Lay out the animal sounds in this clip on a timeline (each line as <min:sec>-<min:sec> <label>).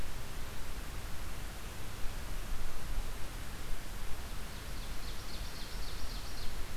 0:04.3-0:06.8 Ovenbird (Seiurus aurocapilla)